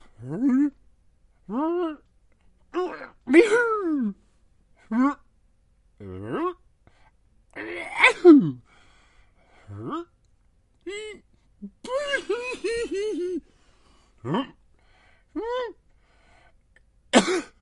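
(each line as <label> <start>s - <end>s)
A man is struggling to speak. 0.2s - 0.8s
A man is struggling to speak. 1.5s - 2.0s
A man is struggling to speak. 2.7s - 4.3s
A man is struggling to speak. 4.9s - 5.2s
A man is struggling to speak. 6.0s - 6.6s
A man sneezes forcefully. 7.5s - 8.6s
A man is struggling to speak. 9.7s - 10.1s
A man is struggling to speak. 10.8s - 11.3s
A man is crying in a comical, exaggerated tone. 11.6s - 13.4s
A man is struggling to speak. 14.2s - 14.6s
A man is struggling to speak. 15.3s - 15.8s
A man is coughing. 17.1s - 17.6s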